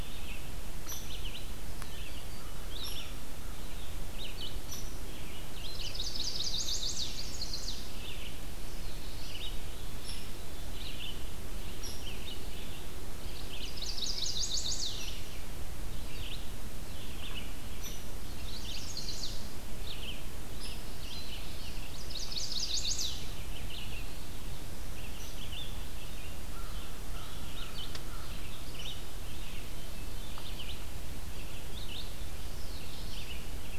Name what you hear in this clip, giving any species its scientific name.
Vireo olivaceus, Dryobates villosus, Setophaga pensylvanica, Corvus brachyrhynchos